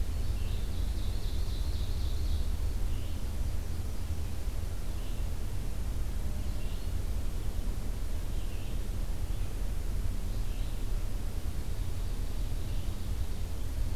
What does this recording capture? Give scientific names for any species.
Vireo olivaceus, Seiurus aurocapilla, Spinus tristis